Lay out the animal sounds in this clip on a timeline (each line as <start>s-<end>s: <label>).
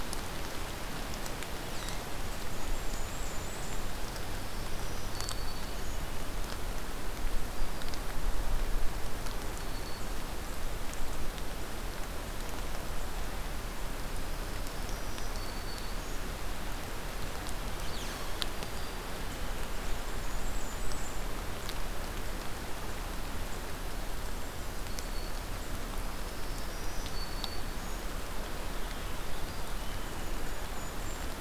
2.1s-3.8s: Blackburnian Warbler (Setophaga fusca)
4.2s-6.1s: Black-throated Green Warbler (Setophaga virens)
7.5s-8.0s: Black-throated Green Warbler (Setophaga virens)
8.8s-10.3s: Black-throated Green Warbler (Setophaga virens)
14.1s-16.2s: Black-throated Green Warbler (Setophaga virens)
18.5s-19.0s: Black-throated Green Warbler (Setophaga virens)
19.6s-21.2s: Blackburnian Warbler (Setophaga fusca)
24.6s-25.4s: Black-throated Green Warbler (Setophaga virens)
26.1s-28.0s: Black-throated Green Warbler (Setophaga virens)
28.2s-30.7s: Purple Finch (Haemorhous purpureus)
29.2s-29.8s: Black-throated Green Warbler (Setophaga virens)
29.9s-31.4s: Golden-crowned Kinglet (Regulus satrapa)